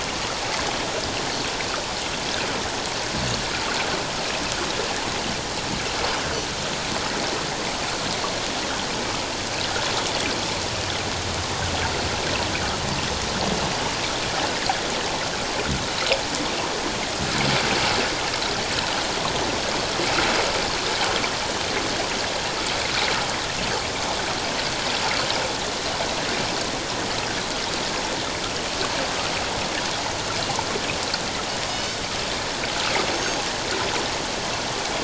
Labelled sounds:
31.7	32.0	Pacific white-sided dolphin, 2.9 to 3.1 kHz
33.1	33.4	Pacific white-sided dolphin, 6.3 to 6.5 kHz

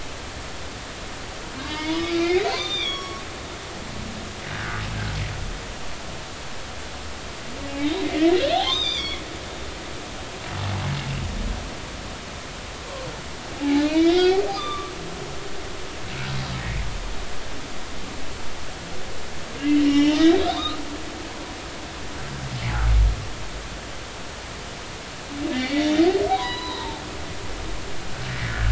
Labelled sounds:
1.7	3.2	humpback whale, 0.86 to 6.1 kHz
4.5	4.8	humpback whale, 1.4 to 1.8 kHz
7.8	9.2	humpback whale, 2.0 to 6.3 kHz
13.6	14.9	humpback whale, 0.80 to 5.3 kHz
19.6	20.8	humpback whale, 1.9 to 5.6 kHz
25.5	27.0	humpback whale, 0.83 to 5.0 kHz
28.5	28.7	humpback whale, 1.3 to 1.8 kHz

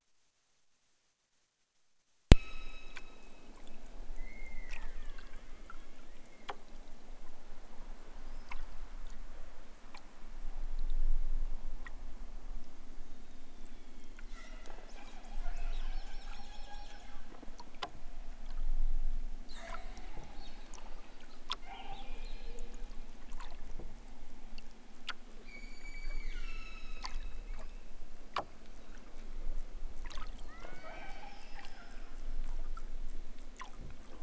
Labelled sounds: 2.3	3.5	killer whale, southern Alaska resident, 0.92 to 8.0 kHz
4.1	6.3	killer whale, southern Alaska resident, 0.46 to 4.6 kHz
25.4	27.6	killer whale, southern Alaska resident, 0.96 to 8.0 kHz
30.4	31.6	killer whale, southern Alaska resident, 0.83 to 6.1 kHz

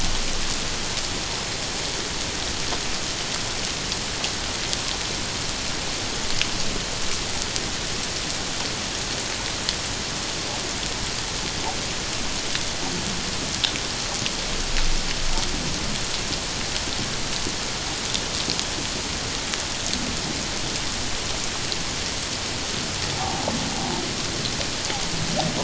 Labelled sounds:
23.2	23.4	humpback whale, 0.78 to 0.94 kHz

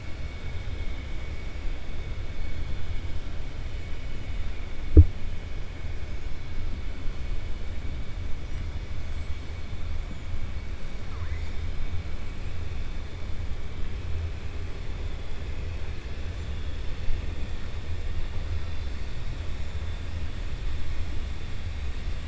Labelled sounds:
11.0	11.5	killer whale, 0.46 to 2.1 kHz

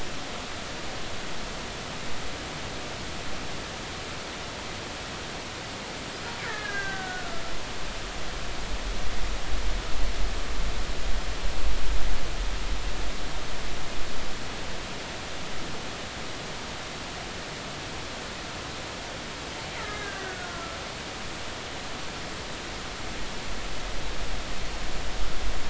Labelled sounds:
6.4	7.4	killer whale, Bigg's (transient), 1.2 to 1.9 kHz
19.7	20.8	killer whale, Bigg's (transient), 1.3 to 2.1 kHz

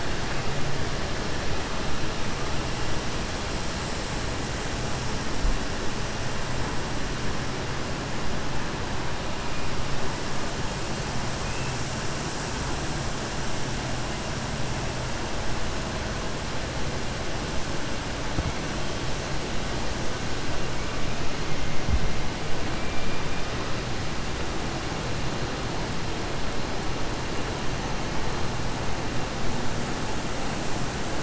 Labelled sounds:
11.4	11.7	killer whale, southern resident, 2.0 to 3.2 kHz

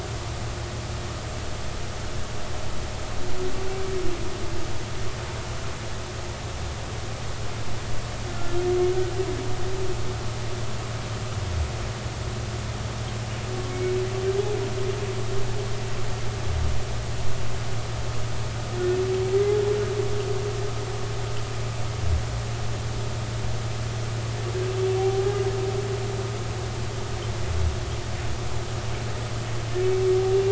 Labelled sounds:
8.3	8.6	humpback whale, 1.3 to 1.5 kHz
13.7	14.0	humpback whale, 2.1 to 2.3 kHz
19.3	19.6	humpback whale, 1.9 to 2.1 kHz
25.0	25.2	humpback whale, 0.80 to 0.83 kHz

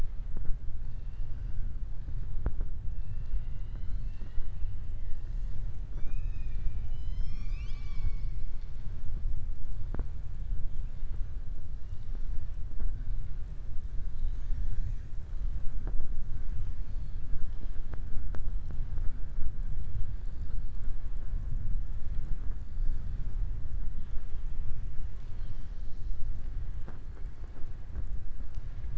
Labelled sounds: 2.9	4.5	killer whale, southern resident, 1.0 to 4.8 kHz

